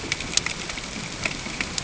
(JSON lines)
{"label": "ambient", "recorder": "HydroMoth"}